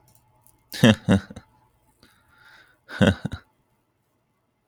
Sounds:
Laughter